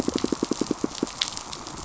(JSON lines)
{"label": "biophony, pulse", "recorder": "SoundTrap 500"}